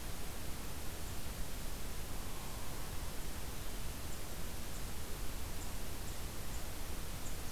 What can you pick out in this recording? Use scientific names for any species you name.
Dryobates villosus